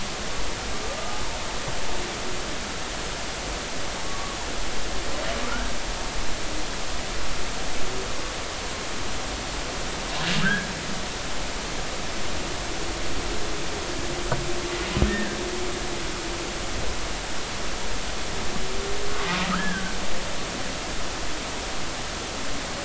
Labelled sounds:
4.0	4.4	humpback whale, 1.1 to 1.2 kHz
5.5	5.7	humpback whale, 1.3 to 1.7 kHz
10.4	10.7	humpback whale, 1.2 to 1.8 kHz
15.0	15.4	humpback whale, 1.5 to 1.9 kHz
19.1	20.0	humpback whale, 1.1 to 1.8 kHz

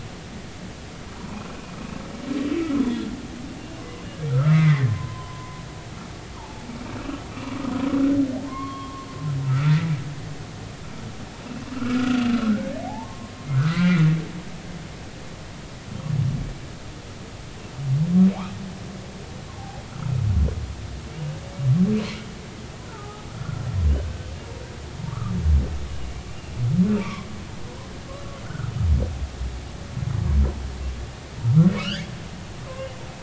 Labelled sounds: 1.1	1.5	humpback whale, 0.80 to 1.2 kHz
4.3	5.6	humpback whale, 0.96 to 2.3 kHz
6.3	6.7	humpback whale, 0.80 to 1.3 kHz
8.5	9.8	humpback whale, 0.90 to 3.4 kHz
11.7	13.3	humpback whale, 0.80 to 1.6 kHz
13.7	14.0	humpback whale, 1.9 to 2.4 kHz
14.5	15.0	humpback whale, 1.1 to 1.7 kHz
20.5	20.8	humpback whale, 0.80 to 1.1 kHz
22.9	23.7	humpback whale, 0.80 to 1.5 kHz
25.1	25.3	humpback whale, 1.1 to 1.4 kHz
26.3	27.3	humpback whale, 0.90 to 2.8 kHz
28.5	28.7	humpback whale, 1.2 to 1.6 kHz
31.8	32.0	humpback whale, 1.2 to 3.5 kHz

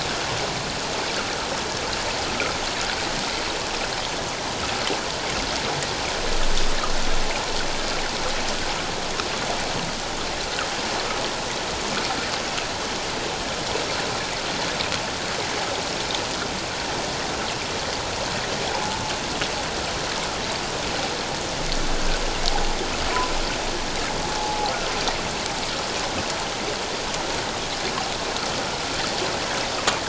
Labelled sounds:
18.7	19.0	humpback whale, 0.81 to 1.0 kHz
24.4	24.7	humpback whale, 0.78 to 0.91 kHz

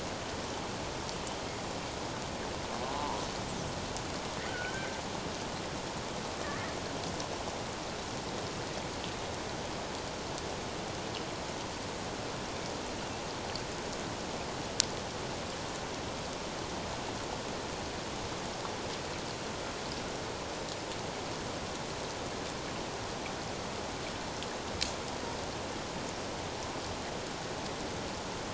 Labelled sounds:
2.8	3.2	killer whale, Bigg's (transient), 0.78 to 1.1 kHz
4.5	5.0	killer whale, Bigg's (transient), 1.4 to 1.6 kHz
6.4	6.7	killer whale, Bigg's (transient), 1.7 to 2.0 kHz

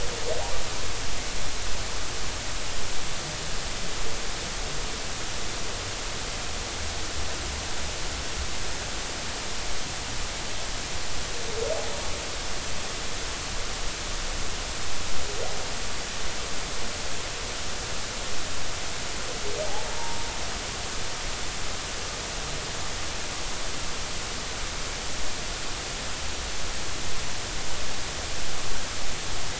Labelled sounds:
19.9	20.2	humpback whale, 0.86 to 0.96 kHz

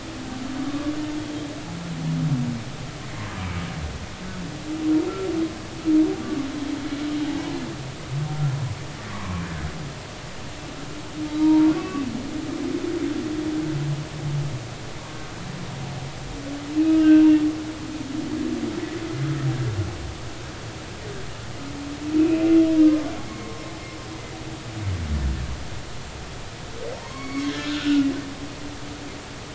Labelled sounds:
0.7	0.9	humpback whale, 1.1 to 1.2 kHz
7.3	7.5	humpback whale, 0.80 to 1.1 kHz
9.1	9.4	humpback whale, 0.93 to 1.2 kHz
11.4	12.1	humpback whale, 0.86 to 2.7 kHz
15.0	15.2	humpback whale, 0.93 to 1.2 kHz
16.7	17.2	humpback whale, 1.2 to 2.8 kHz
22.2	23.6	humpback whale, 0.99 to 2.8 kHz
27.0	28.1	humpback whale, 0.90 to 4.5 kHz

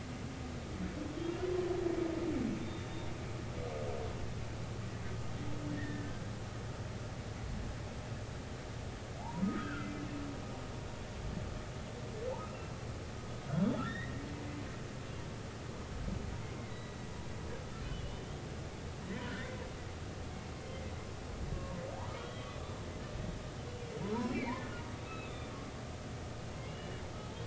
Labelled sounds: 2.6	3.1	humpback whale, 3.5 to 3.8 kHz
5.7	6.3	humpback whale, 1.5 to 2.0 kHz
9.2	9.9	humpback whale, 0.80 to 3.3 kHz
13.8	14.2	humpback whale, 1.6 to 3.8 kHz
16.6	17.0	humpback whale, 1.9 to 4.1 kHz
17.8	18.2	humpback whale, 2.8 to 3.1 kHz
19.1	19.6	humpback whale, 0.93 to 2.1 kHz
22.1	22.8	humpback whale, 1.1 to 3.6 kHz
24.3	25.6	humpback whale, 1.7 to 4.0 kHz
26.7	27.0	humpback whale, 2.7 to 3.0 kHz

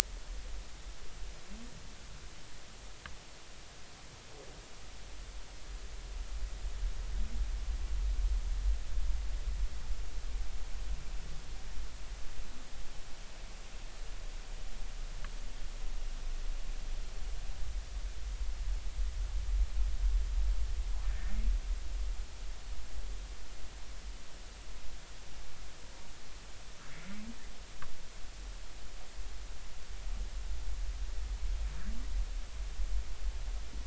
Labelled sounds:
21.0	21.3	humpback whale, 1.7 to 1.9 kHz

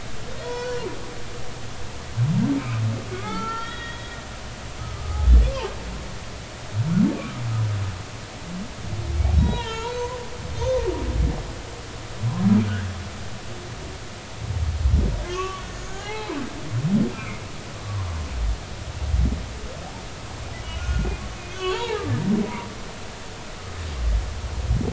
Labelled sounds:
0.4	0.9	humpback whale, 0.86 to 5.6 kHz
3.2	4.1	humpback whale, 0.80 to 3.9 kHz
4.9	5.3	humpback whale, 1.2 to 1.3 kHz
9.3	10.9	humpback whale, 0.86 to 6.5 kHz
15.3	16.6	humpback whale, 0.80 to 3.1 kHz
17.1	17.4	humpback whale, 2.0 to 2.8 kHz
20.8	22.0	humpback whale, 0.80 to 3.5 kHz
22.4	22.7	humpback whale, 0.90 to 1.0 kHz

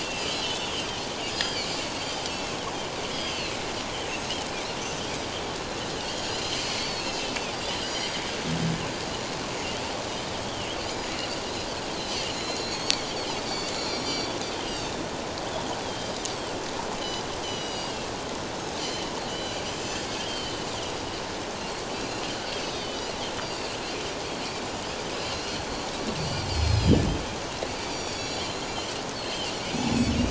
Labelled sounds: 0.0	0.9	Pacific white-sided dolphin, 2.5 to 4.2 kHz
1.3	1.8	Pacific white-sided dolphin, 2.9 to 5.0 kHz
3.1	3.6	Pacific white-sided dolphin, 2.5 to 5.1 kHz
4.1	4.3	Pacific white-sided dolphin, 6.2 to 6.6 kHz
6.1	7.5	Pacific white-sided dolphin, 2.3 to 7.2 kHz
7.9	8.2	Pacific white-sided dolphin, 4.7 to 5.8 kHz
10.4	11.1	Pacific white-sided dolphin, 2.6 to 5.0 kHz
12.0	13.0	Pacific white-sided dolphin, 2.7 to 6.8 kHz
13.4	14.9	Pacific white-sided dolphin, 2.6 to 7.2 kHz
15.8	16.1	Pacific white-sided dolphin, 3.1 to 3.5 kHz
17.0	18.0	Pacific white-sided dolphin, 2.8 to 7.9 kHz
18.8	21.2	Pacific white-sided dolphin, 2.9 to 7.6 kHz
21.9	24.5	Pacific white-sided dolphin, 2.4 to 7.8 kHz
25.2	25.9	Pacific white-sided dolphin, 2.6 to 4.5 kHz
26.5	27.0	Pacific white-sided dolphin, 2.9 to 5.2 kHz
27.9	28.9	Pacific white-sided dolphin, 4.5 to 7.0 kHz
29.2	29.9	Pacific white-sided dolphin, 2.2 to 4.5 kHz

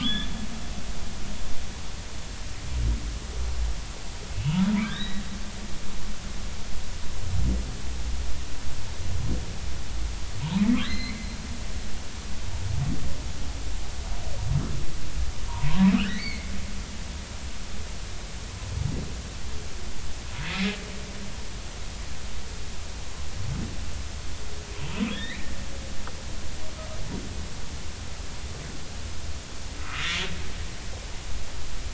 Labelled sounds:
0.0	0.9	humpback whale, 1.2 to 3.6 kHz
4.8	5.2	humpback whale, 1.5 to 4.0 kHz
10.6	11.2	humpback whale, 1.9 to 4.3 kHz
15.5	16.5	humpback whale, 0.86 to 4.6 kHz
20.4	20.8	humpback whale, 2.0 to 2.6 kHz
25.1	25.5	humpback whale, 1.6 to 4.1 kHz
29.8	30.2	humpback whale, 1.1 to 1.4 kHz

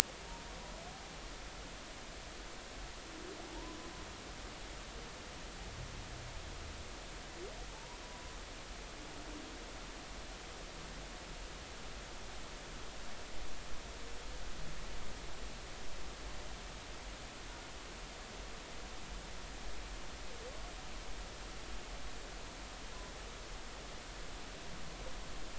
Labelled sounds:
7.7	8.3	humpback whale, 0.83 to 1.1 kHz

